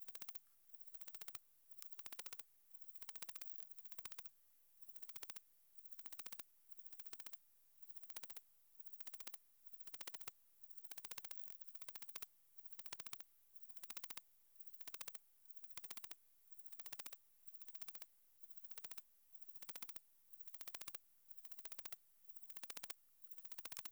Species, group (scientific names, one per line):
Parnassiana coracis
Orthoptera